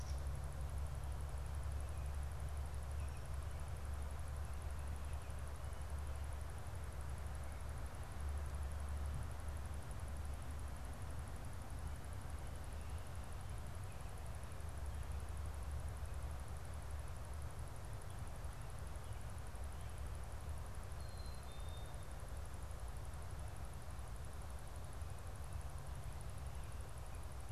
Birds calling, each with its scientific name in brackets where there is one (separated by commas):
Black-capped Chickadee (Poecile atricapillus)